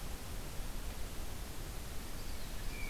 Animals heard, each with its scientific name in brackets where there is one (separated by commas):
Common Yellowthroat (Geothlypis trichas)